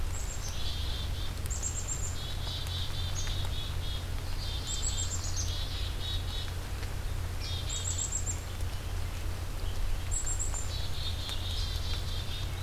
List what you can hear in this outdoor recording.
Black-capped Chickadee